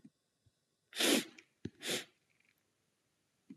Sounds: Sniff